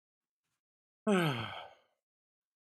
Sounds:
Sigh